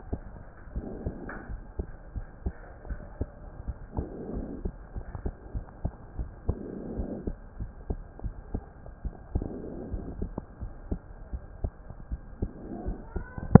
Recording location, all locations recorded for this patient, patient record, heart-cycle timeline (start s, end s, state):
pulmonary valve (PV)
aortic valve (AV)+pulmonary valve (PV)+tricuspid valve (TV)+mitral valve (MV)
#Age: Child
#Sex: Male
#Height: 117.0 cm
#Weight: 23.1 kg
#Pregnancy status: False
#Murmur: Absent
#Murmur locations: nan
#Most audible location: nan
#Systolic murmur timing: nan
#Systolic murmur shape: nan
#Systolic murmur grading: nan
#Systolic murmur pitch: nan
#Systolic murmur quality: nan
#Diastolic murmur timing: nan
#Diastolic murmur shape: nan
#Diastolic murmur grading: nan
#Diastolic murmur pitch: nan
#Diastolic murmur quality: nan
#Outcome: Normal
#Campaign: 2015 screening campaign
0.00	0.69	unannotated
0.69	0.86	S1
0.86	1.02	systole
1.02	1.16	S2
1.16	1.48	diastole
1.48	1.60	S1
1.60	1.74	systole
1.74	1.88	S2
1.88	2.14	diastole
2.14	2.26	S1
2.26	2.44	systole
2.44	2.54	S2
2.54	2.86	diastole
2.86	3.00	S1
3.00	3.20	systole
3.20	3.30	S2
3.30	3.60	diastole
3.60	3.76	S1
3.76	3.96	systole
3.96	4.08	S2
4.08	4.30	diastole
4.30	4.48	S1
4.48	4.62	systole
4.62	4.74	S2
4.74	4.94	diastole
4.94	5.04	S1
5.04	5.20	systole
5.20	5.34	S2
5.34	5.54	diastole
5.54	5.66	S1
5.66	5.84	systole
5.84	5.94	S2
5.94	6.16	diastole
6.16	6.30	S1
6.30	6.44	systole
6.44	6.60	S2
6.60	6.93	diastole
6.93	7.06	S1
7.06	7.24	systole
7.24	7.36	S2
7.36	7.57	diastole
7.57	7.72	S1
7.72	7.86	systole
7.86	8.04	S2
8.04	8.21	diastole
8.21	8.34	S1
8.34	8.50	systole
8.50	8.62	S2
8.62	9.01	diastole
9.01	9.12	S1
9.12	9.32	systole
9.32	9.44	S2
9.44	9.89	diastole
9.89	10.04	S1
10.04	10.20	systole
10.20	10.30	S2
10.30	10.59	diastole
10.59	10.72	S1
10.72	10.88	systole
10.88	11.00	S2
11.00	11.30	diastole
11.30	11.41	S1
11.41	13.60	unannotated